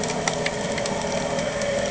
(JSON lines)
{"label": "anthrophony, boat engine", "recorder": "HydroMoth"}